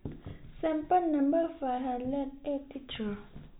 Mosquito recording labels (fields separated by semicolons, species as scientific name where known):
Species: no mosquito; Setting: cup